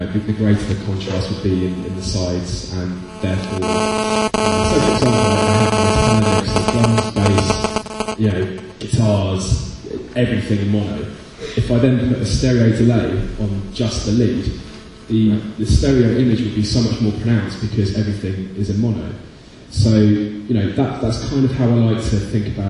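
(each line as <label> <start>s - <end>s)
Someone is speaking. 0.0s - 3.5s
Static noise. 3.6s - 8.9s
Someone is speaking. 8.9s - 22.7s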